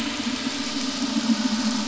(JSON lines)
{"label": "anthrophony, boat engine", "recorder": "SoundTrap 500"}